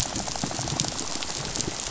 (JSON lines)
{"label": "biophony, rattle", "recorder": "SoundTrap 500"}